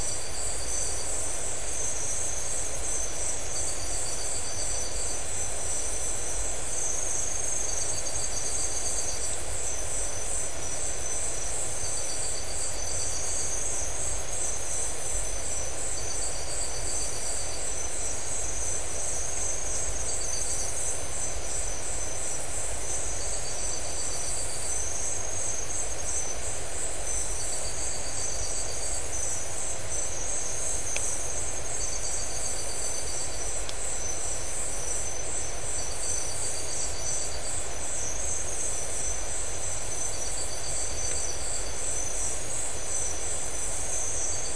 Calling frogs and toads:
none

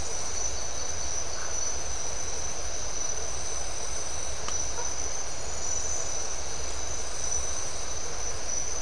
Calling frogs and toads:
Phyllomedusa distincta

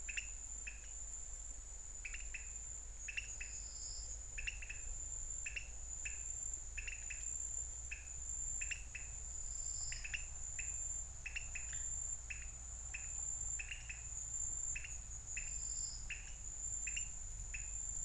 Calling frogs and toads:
pointedbelly frog (Leptodactylus podicipinus)

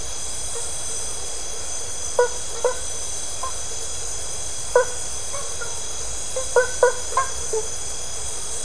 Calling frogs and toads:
blacksmith tree frog (Boana faber)

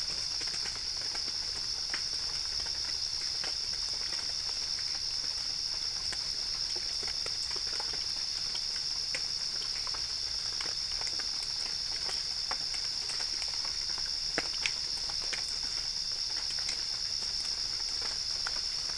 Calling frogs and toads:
none

